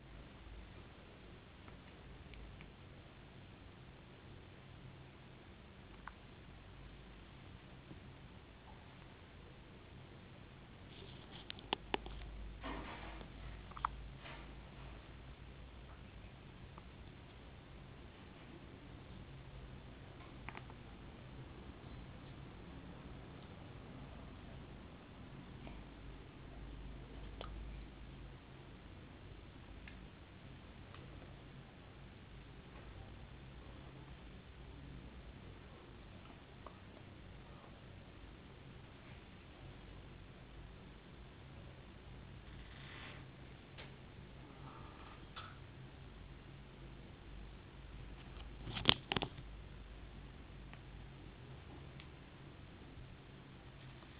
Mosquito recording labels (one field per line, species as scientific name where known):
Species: no mosquito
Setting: insect culture